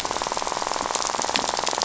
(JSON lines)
{"label": "biophony, rattle", "recorder": "SoundTrap 500"}